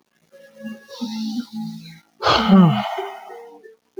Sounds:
Sigh